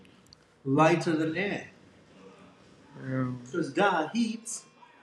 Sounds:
Sigh